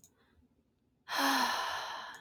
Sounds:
Sigh